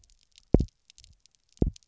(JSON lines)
{"label": "biophony, double pulse", "recorder": "SoundTrap 300"}